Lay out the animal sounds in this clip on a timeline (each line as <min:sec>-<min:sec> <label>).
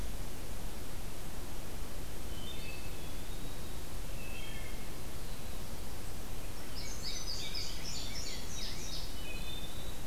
0:02.2-0:03.2 Wood Thrush (Hylocichla mustelina)
0:02.4-0:03.9 Eastern Wood-Pewee (Contopus virens)
0:04.1-0:04.8 Wood Thrush (Hylocichla mustelina)
0:06.5-0:09.3 Indigo Bunting (Passerina cyanea)
0:06.6-0:08.9 Rose-breasted Grosbeak (Pheucticus ludovicianus)
0:08.8-0:10.1 Eastern Wood-Pewee (Contopus virens)
0:09.1-0:10.0 Wood Thrush (Hylocichla mustelina)